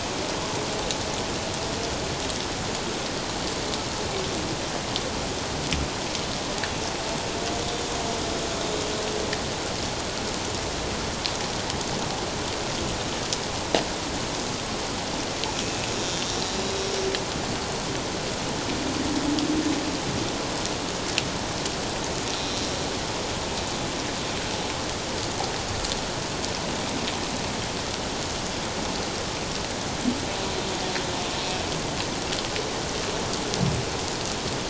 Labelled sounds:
15.6	16.9	humpback whale, 2.5 to 3.9 kHz
22.4	22.7	humpback whale, 3.9 to 4.1 kHz

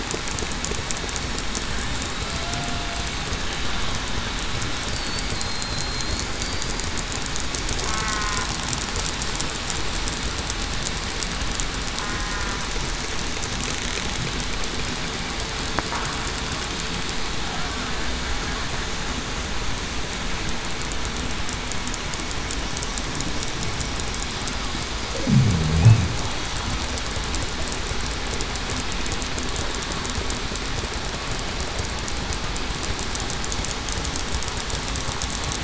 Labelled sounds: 2.3	2.9	killer whale, southern resident, 0.63 to 0.73 kHz
5.3	6.1	killer whale, southern resident, 4.1 to 4.4 kHz
6.4	6.8	killer whale, southern resident, 4.6 to 4.8 kHz
8.0	8.4	killer whale, southern resident, 1.8 to 2.0 kHz
12.0	12.4	killer whale, southern resident, 1.8 to 1.9 kHz

